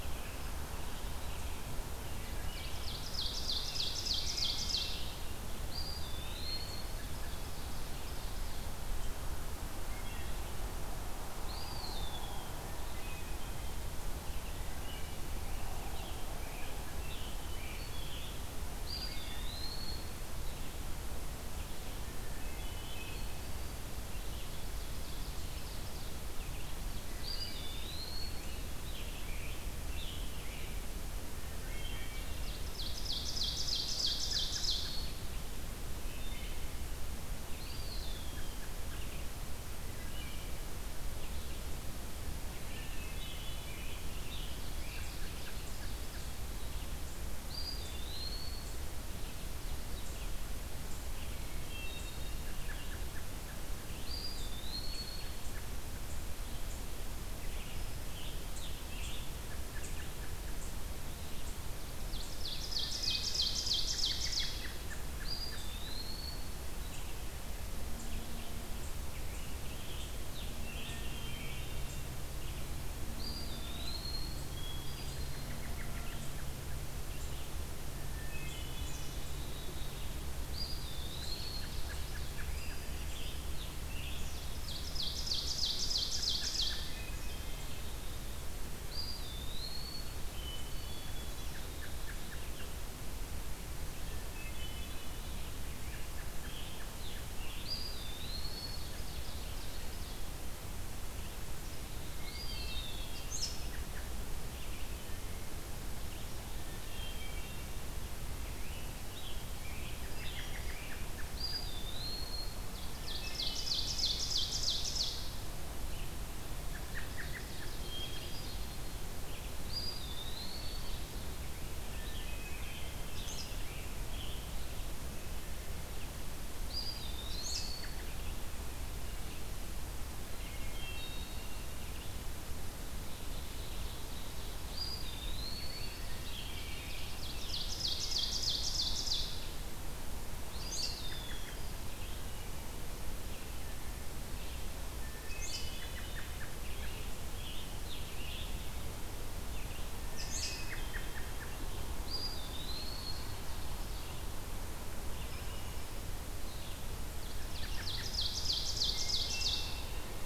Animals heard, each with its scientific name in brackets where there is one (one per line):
Eastern Wood-Pewee (Contopus virens)
Hermit Thrush (Catharus guttatus)
Scarlet Tanager (Piranga olivacea)
Red-eyed Vireo (Vireo olivaceus)
Wood Thrush (Hylocichla mustelina)
Black-capped Chickadee (Poecile atricapillus)
Ovenbird (Seiurus aurocapilla)
American Robin (Turdus migratorius)